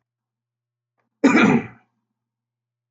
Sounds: Cough